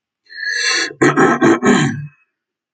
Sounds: Throat clearing